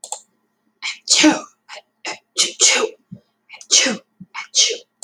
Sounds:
Sneeze